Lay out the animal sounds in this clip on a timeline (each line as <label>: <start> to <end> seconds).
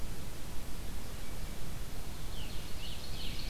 Scarlet Tanager (Piranga olivacea): 2.2 to 3.5 seconds
Ovenbird (Seiurus aurocapilla): 2.5 to 3.5 seconds